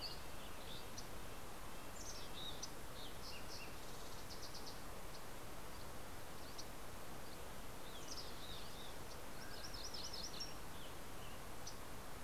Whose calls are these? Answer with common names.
Red-breasted Nuthatch, Yellow-rumped Warbler, Mountain Chickadee, Fox Sparrow, Dusky Flycatcher, Western Tanager, Mountain Quail, MacGillivray's Warbler